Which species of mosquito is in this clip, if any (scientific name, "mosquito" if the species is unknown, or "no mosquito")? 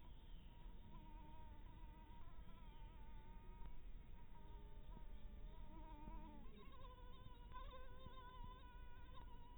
mosquito